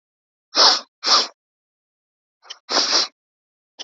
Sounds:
Sniff